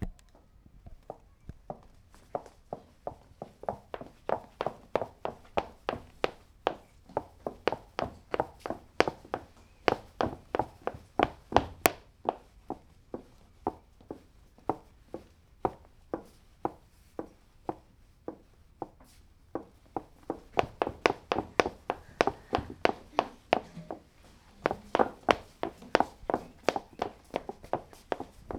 Is someone talking?
no